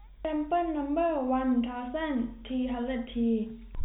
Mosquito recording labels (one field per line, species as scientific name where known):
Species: no mosquito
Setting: cup